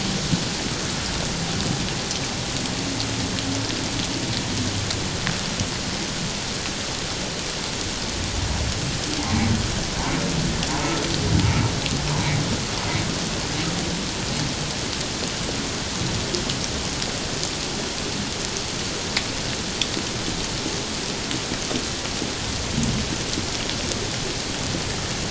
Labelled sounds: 10.8	11.1	humpback whale, 1.2 to 1.4 kHz

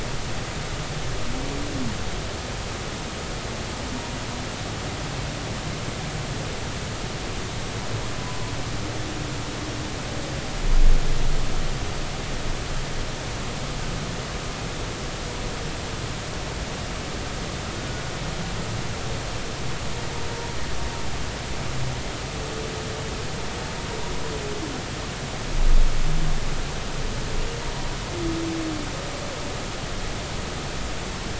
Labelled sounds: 8.2	8.5	humpback whale, 0.93 to 1.1 kHz

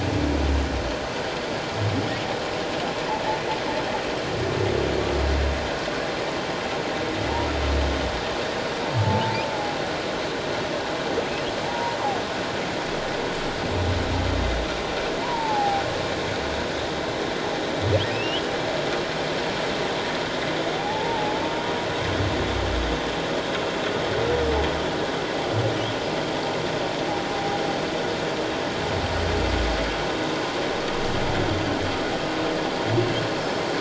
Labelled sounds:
8.9	9.4	humpback whale, 0.81 to 1.0 kHz
11.6	12.0	humpback whale, 0.78 to 1.1 kHz
15.2	15.8	humpback whale, 0.78 to 1.1 kHz
18.1	18.5	humpback whale, 2.4 to 3.4 kHz
20.8	21.4	humpback whale, 0.78 to 0.97 kHz

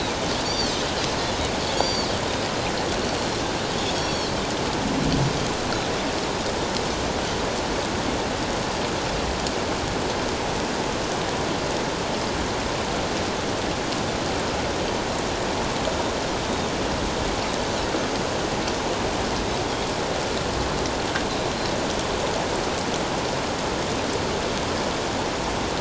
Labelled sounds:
1.7	2.1	Pacific white-sided dolphin, 4.3 to 7.1 kHz
3.9	4.3	Pacific white-sided dolphin, 3.1 to 5.7 kHz

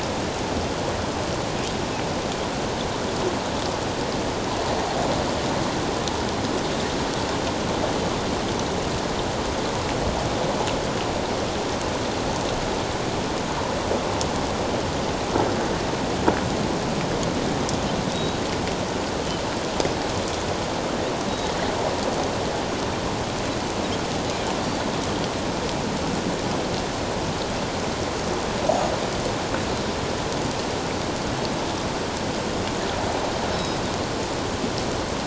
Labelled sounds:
18.1	18.4	Pacific white-sided dolphin, 3.8 to 3.9 kHz
33.5	33.8	Pacific white-sided dolphin, 3.8 to 5.4 kHz

